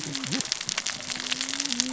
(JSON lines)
{"label": "biophony, cascading saw", "recorder": "SoundTrap 600 or HydroMoth"}